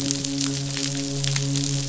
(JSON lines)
{"label": "biophony, midshipman", "recorder": "SoundTrap 500"}